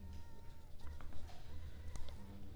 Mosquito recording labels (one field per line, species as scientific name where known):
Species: Culex pipiens complex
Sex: female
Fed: unfed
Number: one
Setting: cup